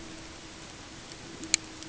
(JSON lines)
{"label": "ambient", "recorder": "HydroMoth"}